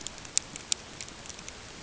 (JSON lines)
{"label": "ambient", "recorder": "HydroMoth"}